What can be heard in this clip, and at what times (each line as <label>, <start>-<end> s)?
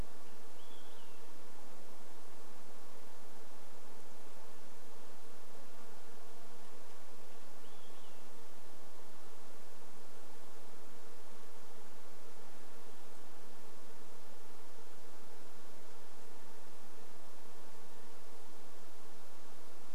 Olive-sided Flycatcher song, 0-2 s
insect buzz, 0-20 s
Olive-sided Flycatcher song, 6-10 s